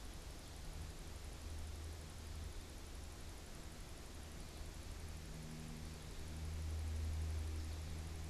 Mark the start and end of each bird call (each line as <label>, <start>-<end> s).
American Goldfinch (Spinus tristis), 4.1-8.3 s